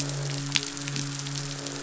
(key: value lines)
label: biophony, midshipman
recorder: SoundTrap 500

label: biophony, croak
recorder: SoundTrap 500